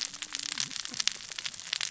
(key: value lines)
label: biophony, cascading saw
recorder: SoundTrap 600 or HydroMoth